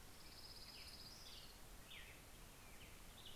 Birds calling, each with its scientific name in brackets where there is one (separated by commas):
Black-headed Grosbeak (Pheucticus melanocephalus), Orange-crowned Warbler (Leiothlypis celata)